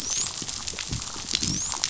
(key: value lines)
label: biophony, dolphin
recorder: SoundTrap 500